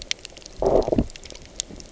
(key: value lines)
label: biophony, low growl
recorder: SoundTrap 300